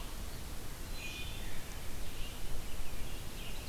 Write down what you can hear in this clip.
Wood Thrush, Red-eyed Vireo